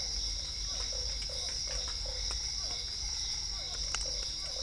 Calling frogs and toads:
Dendropsophus cruzi, Physalaemus cuvieri, Usina tree frog (Boana lundii)
7:00pm

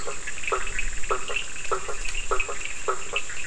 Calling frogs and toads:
Bischoff's tree frog (Boana bischoffi), blacksmith tree frog (Boana faber), Cochran's lime tree frog (Sphaenorhynchus surdus)
11:00pm

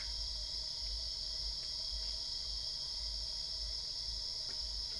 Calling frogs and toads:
none
1:45am

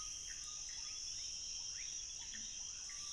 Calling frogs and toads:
rufous frog (Leptodactylus fuscus), Pithecopus azureus
11:30pm

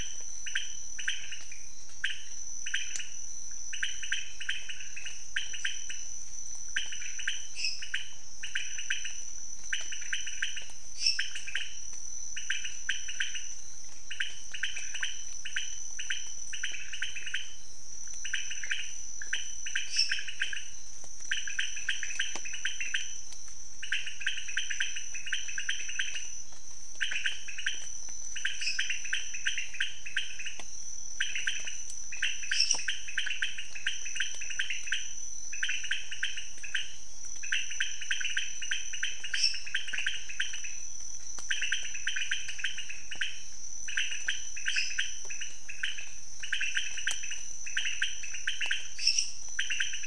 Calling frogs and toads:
pointedbelly frog (Leptodactylus podicipinus), lesser tree frog (Dendropsophus minutus)
3:30am

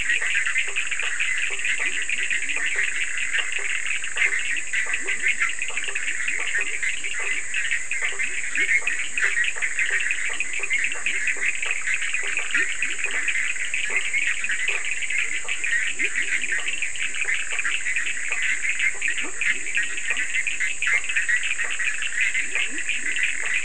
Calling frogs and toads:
Bischoff's tree frog (Boana bischoffi), blacksmith tree frog (Boana faber), Leptodactylus latrans, Cochran's lime tree frog (Sphaenorhynchus surdus)
2:00am

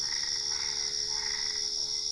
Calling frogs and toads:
Boana albopunctata
10:30pm

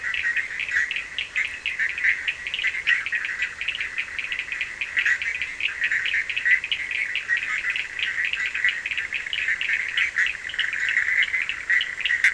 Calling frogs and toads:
Bischoff's tree frog (Boana bischoffi), Cochran's lime tree frog (Sphaenorhynchus surdus)
1:15am

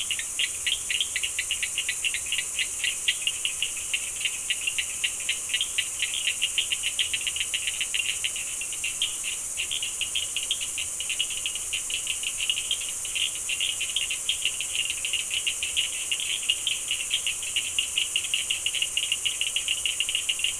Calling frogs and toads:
Cochran's lime tree frog (Sphaenorhynchus surdus)
7:30pm

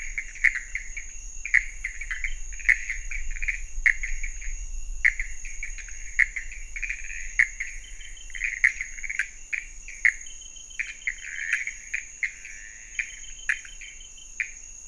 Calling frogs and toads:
pointedbelly frog (Leptodactylus podicipinus), Pithecopus azureus
1:30am

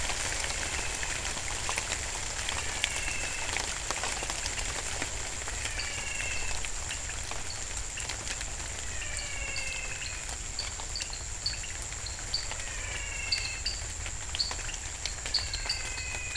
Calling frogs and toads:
pointedbelly frog (Leptodactylus podicipinus), menwig frog (Physalaemus albonotatus), dwarf tree frog (Dendropsophus nanus)
7:00pm

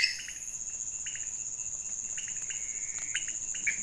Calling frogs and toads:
pointedbelly frog (Leptodactylus podicipinus), Pithecopus azureus
12:15am

